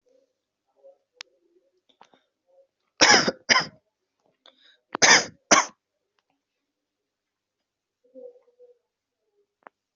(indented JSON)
{
  "expert_labels": [
    {
      "quality": "good",
      "cough_type": "dry",
      "dyspnea": false,
      "wheezing": false,
      "stridor": false,
      "choking": false,
      "congestion": false,
      "nothing": true,
      "diagnosis": "upper respiratory tract infection",
      "severity": "mild"
    }
  ],
  "age": 18,
  "gender": "male",
  "respiratory_condition": false,
  "fever_muscle_pain": true,
  "status": "COVID-19"
}